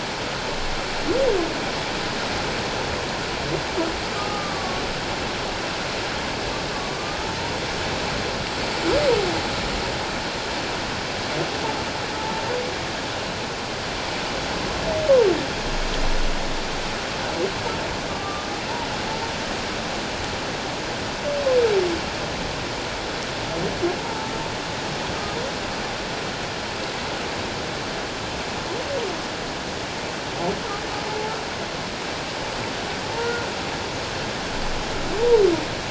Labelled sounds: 4.1	4.8	humpback whale, 1.1 to 1.3 kHz
12.2	12.4	humpback whale, 0.84 to 0.94 kHz
18.1	18.5	humpback whale, 1.1 to 1.2 kHz
24.0	24.3	humpback whale, 0.78 to 1.0 kHz
33.2	33.5	humpback whale, 1.3 to 1.5 kHz

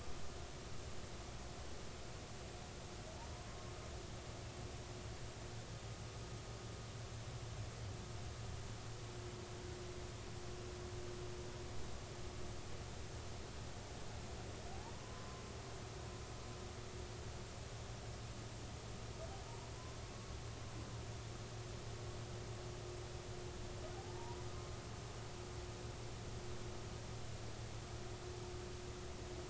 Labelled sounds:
14.9	15.4	humpback whale, 0.93 to 1.1 kHz

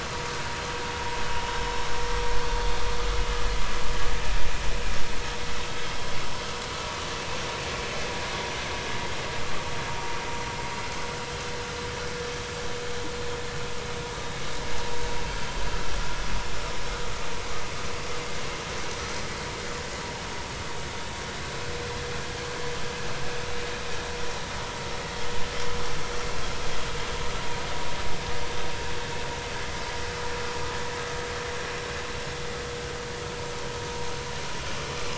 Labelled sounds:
2.6	2.8	vessel noise, 3.5 to 3.7 kHz

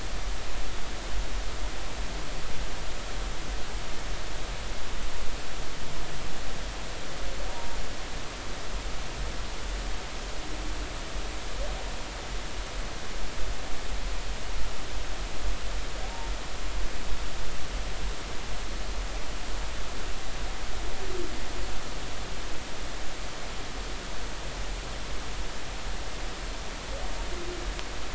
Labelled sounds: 7.5	7.8	humpback whale, 0.90 to 1.0 kHz

